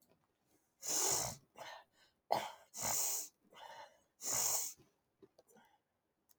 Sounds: Sniff